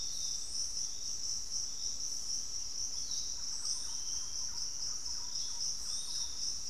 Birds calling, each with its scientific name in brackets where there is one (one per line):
Thrush-like Wren (Campylorhynchus turdinus)
Piratic Flycatcher (Legatus leucophaius)